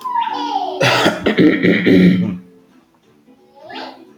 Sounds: Throat clearing